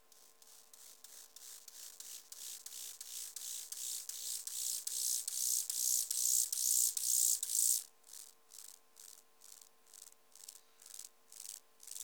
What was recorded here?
Chorthippus mollis, an orthopteran